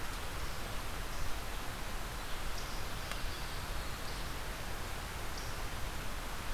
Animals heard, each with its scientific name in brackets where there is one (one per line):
unknown mammal